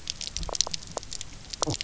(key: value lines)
label: biophony, knock croak
recorder: SoundTrap 300